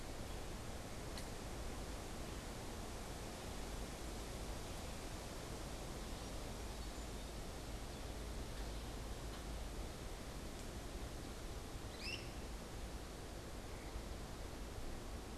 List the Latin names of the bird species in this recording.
Melospiza melodia, Myiarchus crinitus